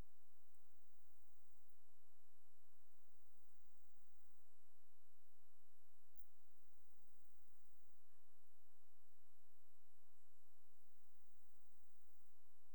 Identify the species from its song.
Leptophyes punctatissima